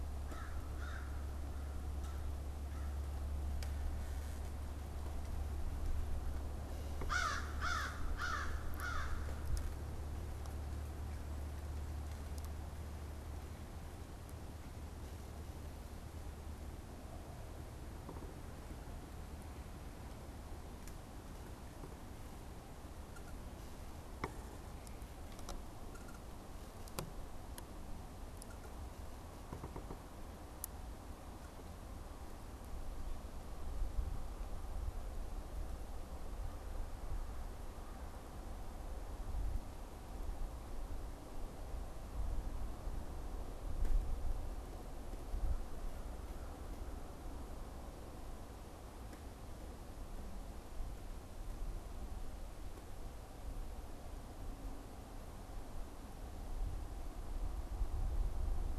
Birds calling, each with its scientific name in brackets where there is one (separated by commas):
American Crow (Corvus brachyrhynchos)